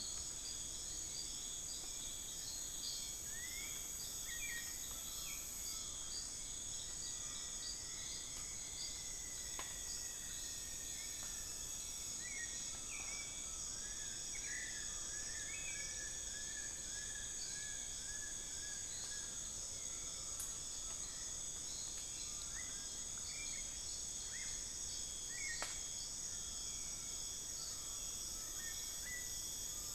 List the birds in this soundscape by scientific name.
Turdus hauxwelli, Turdus ignobilis, Micrastur buckleyi, Formicarius rufifrons, Nasica longirostris